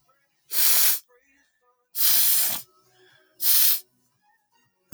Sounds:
Sniff